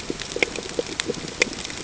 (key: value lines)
label: ambient
recorder: HydroMoth